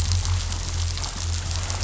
{"label": "anthrophony, boat engine", "recorder": "SoundTrap 500"}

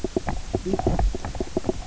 {"label": "biophony, knock croak", "recorder": "SoundTrap 300"}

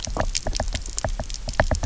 {"label": "biophony, knock", "recorder": "SoundTrap 300"}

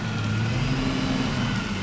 {"label": "anthrophony, boat engine", "recorder": "SoundTrap 500"}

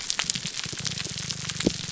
{"label": "biophony, grouper groan", "recorder": "SoundTrap 300"}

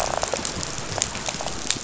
{"label": "biophony, rattle", "recorder": "SoundTrap 500"}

